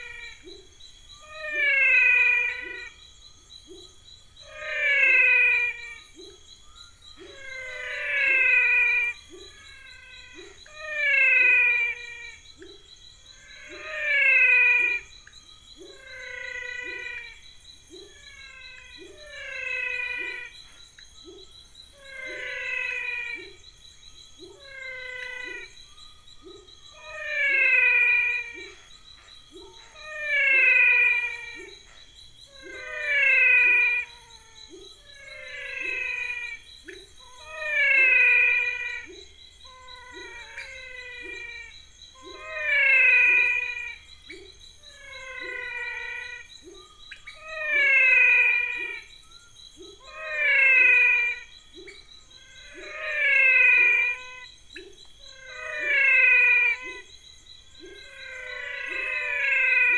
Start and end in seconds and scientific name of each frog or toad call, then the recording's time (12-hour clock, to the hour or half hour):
0.0	59.9	Adenomera diptyx
0.4	59.2	Leptodactylus labyrinthicus
1.3	59.9	Physalaemus albonotatus
12.5	12.9	Leptodactylus podicipinus
15.2	15.4	Leptodactylus podicipinus
17.1	17.3	Leptodactylus podicipinus
18.7	18.9	Leptodactylus podicipinus
20.9	21.2	Leptodactylus podicipinus
~6pm